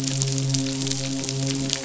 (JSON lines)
{"label": "biophony, midshipman", "recorder": "SoundTrap 500"}